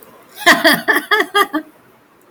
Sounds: Laughter